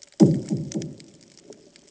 {"label": "anthrophony, bomb", "recorder": "HydroMoth"}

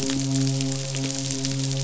{"label": "biophony, midshipman", "recorder": "SoundTrap 500"}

